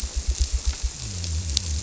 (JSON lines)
{"label": "biophony", "recorder": "SoundTrap 300"}